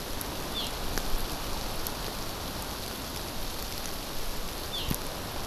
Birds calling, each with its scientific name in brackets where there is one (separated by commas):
Eurasian Skylark (Alauda arvensis)